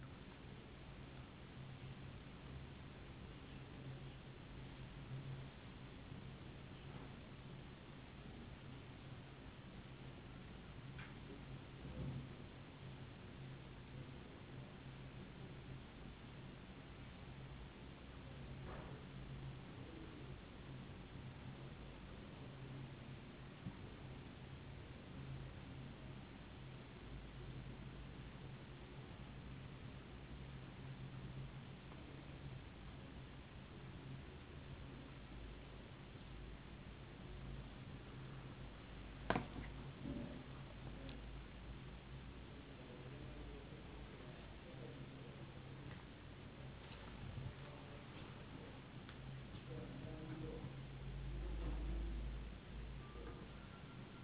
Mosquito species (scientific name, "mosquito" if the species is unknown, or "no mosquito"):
no mosquito